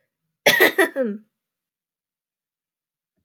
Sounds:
Throat clearing